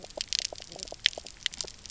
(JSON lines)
{"label": "biophony, knock croak", "recorder": "SoundTrap 300"}